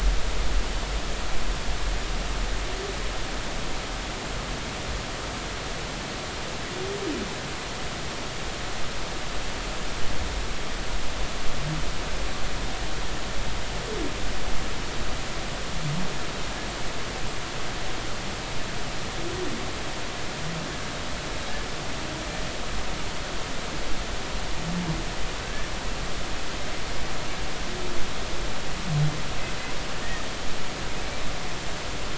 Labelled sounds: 25.4	25.7	humpback whale, 1.5 to 1.8 kHz
30.0	30.3	humpback whale, 1.8 to 2.0 kHz

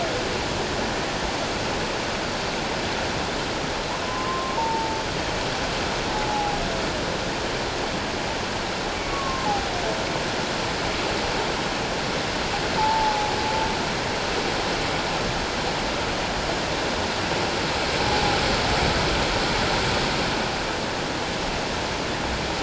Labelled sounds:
4.0	5.0	humpback whale, 0.84 to 1.1 kHz
6.3	6.6	humpback whale, 0.78 to 0.91 kHz
9.1	9.5	humpback whale, 1.0 to 1.2 kHz
12.8	13.3	humpback whale, 0.78 to 0.94 kHz
18.0	18.4	humpback whale, 0.78 to 0.88 kHz

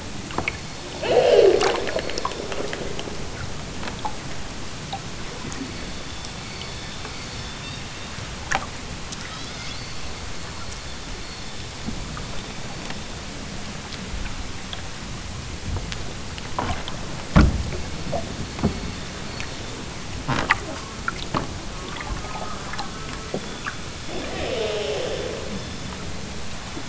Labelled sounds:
0.1	1.9	killer whale, southern Alaska resident, 0 to 6.9 kHz
5.4	6.1	killer whale, southern Alaska resident, 1.8 to 5.9 kHz
7.6	8.3	killer whale, southern Alaska resident, 2.2 to 5.7 kHz
9.1	10.3	killer whale, southern Alaska resident, 0.82 to 6.5 kHz
10.6	11.3	killer whale, southern Alaska resident, 2.2 to 5.1 kHz
17.6	18.4	killer whale, southern Alaska resident, 1.7 to 5.6 kHz
23.7	26.8	killer whale, southern Alaska resident, 0.05 to 7.6 kHz

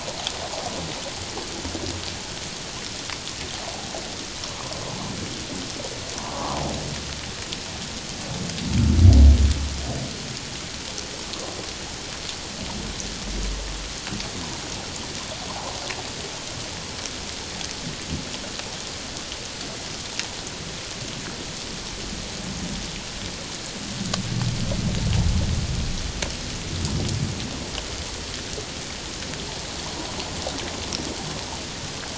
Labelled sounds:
6.2	6.6	humpback whale, 0.78 to 1.3 kHz

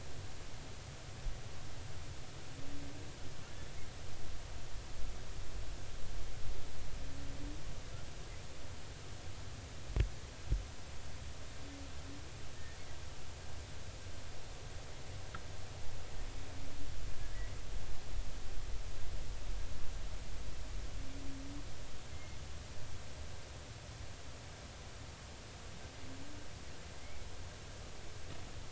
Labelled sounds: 22.1	22.4	humpback whale, 2.0 to 2.2 kHz
26.9	27.2	humpback whale, 2.0 to 2.4 kHz

